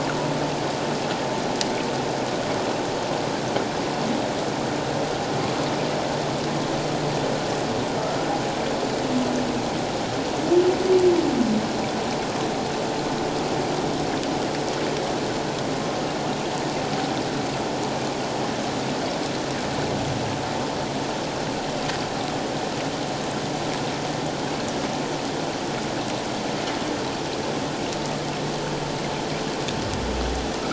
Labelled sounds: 8.0	8.3	humpback whale, 1.2 to 1.5 kHz

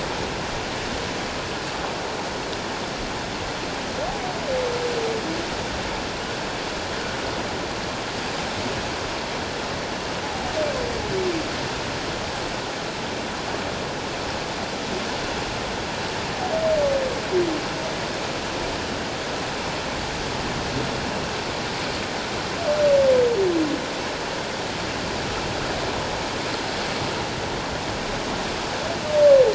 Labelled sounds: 10.2	10.5	humpback whale, 0.78 to 0.91 kHz

